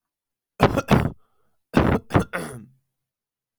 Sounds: Throat clearing